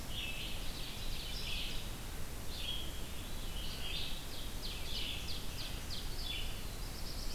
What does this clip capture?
Red-eyed Vireo, Ovenbird, Black-throated Blue Warbler